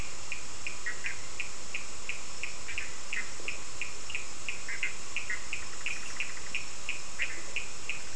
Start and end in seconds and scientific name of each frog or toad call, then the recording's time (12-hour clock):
0.0	8.1	Sphaenorhynchus surdus
0.8	1.0	Boana bischoffi
3.1	3.3	Boana bischoffi
4.6	8.1	Boana bischoffi
5:00am